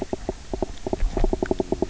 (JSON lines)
{"label": "biophony, knock croak", "recorder": "SoundTrap 300"}